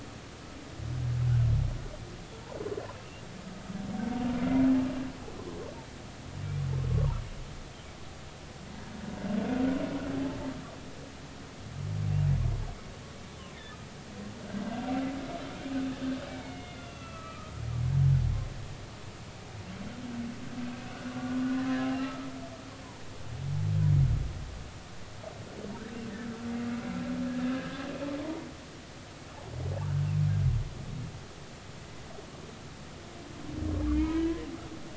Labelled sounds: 2.9	3.2	humpback whale, 2.6 to 3.0 kHz
6.9	7.2	humpback whale, 0.86 to 1.2 kHz
10.1	10.4	humpback whale, 0.80 to 0.93 kHz
16.3	17.5	humpback whale, 1.1 to 6.2 kHz
20.7	21.0	humpback whale, 2.5 to 2.7 kHz
21.8	22.2	humpback whale, 0.80 to 2.9 kHz
27.3	27.8	humpback whale, 1.5 to 1.9 kHz
28.2	28.5	humpback whale, 0.86 to 0.99 kHz
33.9	34.4	humpback whale, 0.86 to 2.6 kHz

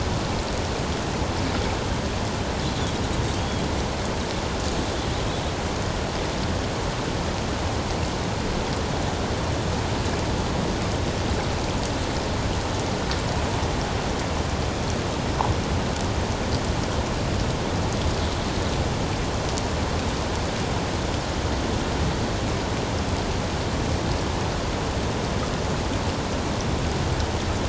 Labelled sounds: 3.3	3.7	humpback whale, 3.0 to 3.4 kHz

